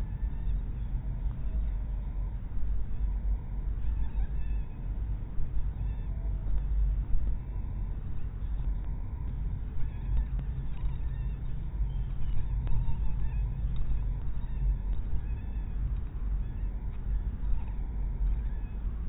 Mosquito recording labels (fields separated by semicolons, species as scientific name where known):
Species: mosquito; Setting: cup